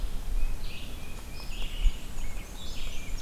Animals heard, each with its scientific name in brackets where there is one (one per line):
Red-eyed Vireo (Vireo olivaceus)
Hairy Woodpecker (Dryobates villosus)
Tufted Titmouse (Baeolophus bicolor)
Black-and-white Warbler (Mniotilta varia)